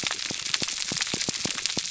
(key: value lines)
label: biophony, pulse
recorder: SoundTrap 300